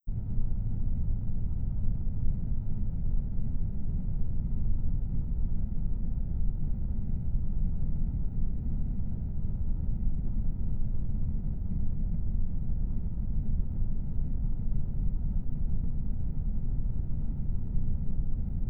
Is there a sharp ping?
no